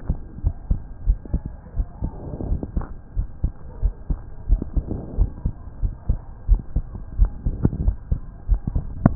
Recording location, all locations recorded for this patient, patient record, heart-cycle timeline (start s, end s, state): aortic valve (AV)
aortic valve (AV)+pulmonary valve (PV)+tricuspid valve (TV)+mitral valve (MV)
#Age: Adolescent
#Sex: Male
#Height: 154.0 cm
#Weight: 35.7 kg
#Pregnancy status: False
#Murmur: Absent
#Murmur locations: nan
#Most audible location: nan
#Systolic murmur timing: nan
#Systolic murmur shape: nan
#Systolic murmur grading: nan
#Systolic murmur pitch: nan
#Systolic murmur quality: nan
#Diastolic murmur timing: nan
#Diastolic murmur shape: nan
#Diastolic murmur grading: nan
#Diastolic murmur pitch: nan
#Diastolic murmur quality: nan
#Outcome: Abnormal
#Campaign: 2015 screening campaign
0.00	0.39	unannotated
0.39	0.54	S1
0.54	0.66	systole
0.66	0.78	S2
0.78	1.04	diastole
1.04	1.18	S1
1.18	1.30	systole
1.30	1.42	S2
1.42	1.76	diastole
1.76	1.88	S1
1.88	2.02	systole
2.02	2.10	S2
2.10	2.46	diastole
2.46	2.62	S1
2.62	2.74	systole
2.74	2.86	S2
2.86	3.16	diastole
3.16	3.28	S1
3.28	3.40	systole
3.40	3.52	S2
3.52	3.80	diastole
3.80	3.94	S1
3.94	4.06	systole
4.06	4.18	S2
4.18	4.48	diastole
4.48	4.62	S1
4.62	4.74	systole
4.74	4.88	S2
4.88	5.18	diastole
5.18	5.32	S1
5.32	5.44	systole
5.44	5.54	S2
5.54	5.82	diastole
5.82	5.94	S1
5.94	6.08	systole
6.08	6.20	S2
6.20	6.48	diastole
6.48	6.64	S1
6.64	6.74	systole
6.74	6.86	S2
6.86	7.16	diastole
7.16	7.32	S1
7.32	7.44	systole
7.44	7.54	S2
7.54	7.78	diastole
7.78	7.96	S1
7.96	8.08	systole
8.08	8.20	S2
8.20	8.50	diastole
8.50	8.62	S1
8.62	8.72	systole
8.72	8.80	S2
8.80	9.15	unannotated